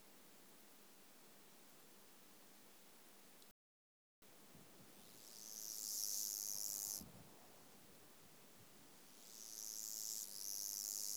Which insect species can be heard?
Stenobothrus nigromaculatus